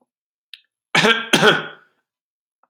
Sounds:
Cough